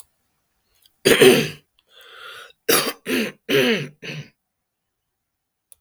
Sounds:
Throat clearing